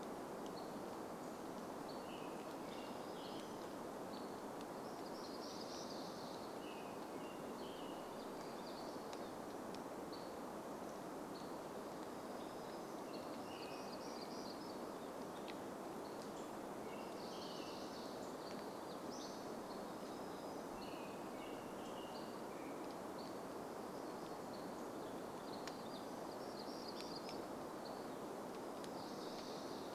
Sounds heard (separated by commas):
American Robin song, warbler song, Hammond's Flycatcher song, Hammond's Flycatcher call